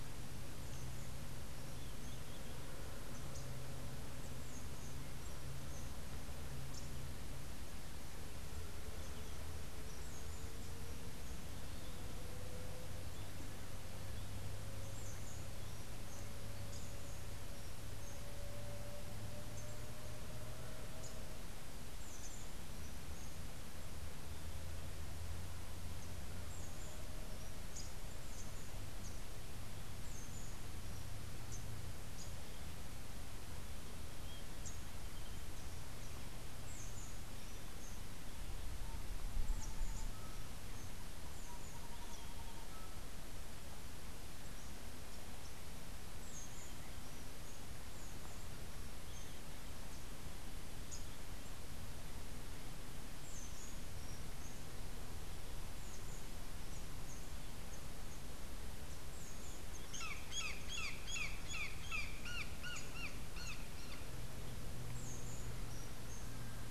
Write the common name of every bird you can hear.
Brown Jay